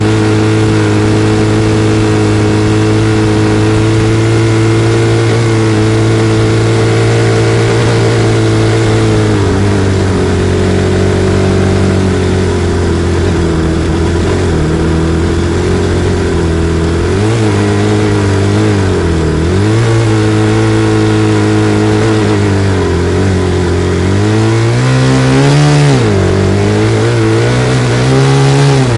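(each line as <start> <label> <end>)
0.2 A motocross dirt bike engine revs and accelerates steadily on rough terrain. 29.0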